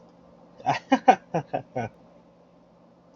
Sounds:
Laughter